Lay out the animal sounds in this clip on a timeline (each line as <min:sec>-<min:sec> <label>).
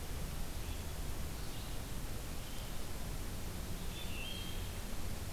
0:00.0-0:05.3 Red-eyed Vireo (Vireo olivaceus)
0:03.9-0:04.7 Wood Thrush (Hylocichla mustelina)